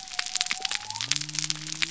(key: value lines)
label: biophony
recorder: SoundTrap 300